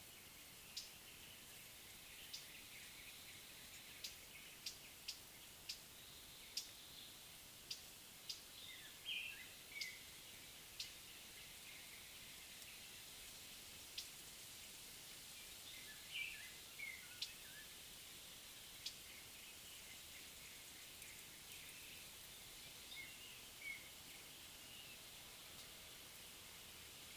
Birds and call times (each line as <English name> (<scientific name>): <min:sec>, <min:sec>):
Northern Double-collared Sunbird (Cinnyris reichenowi): 0:04.7
Cape Robin-Chat (Cossypha caffra): 0:16.2